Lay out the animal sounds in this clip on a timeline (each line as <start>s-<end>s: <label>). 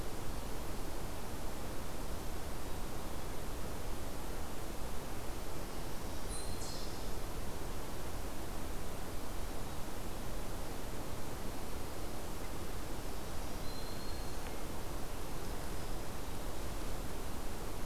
5.9s-6.9s: Black-throated Green Warbler (Setophaga virens)
6.1s-7.1s: Eastern Chipmunk (Tamias striatus)
13.4s-14.6s: Black-throated Green Warbler (Setophaga virens)